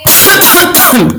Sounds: Laughter